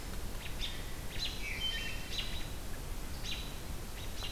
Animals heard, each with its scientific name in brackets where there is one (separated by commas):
American Robin (Turdus migratorius), Wood Thrush (Hylocichla mustelina)